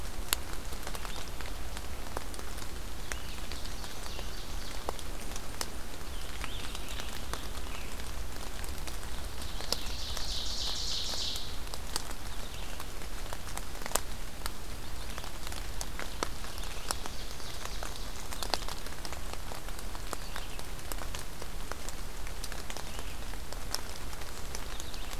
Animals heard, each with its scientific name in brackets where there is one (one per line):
Rose-breasted Grosbeak (Pheucticus ludovicianus)
Red-eyed Vireo (Vireo olivaceus)
Ovenbird (Seiurus aurocapilla)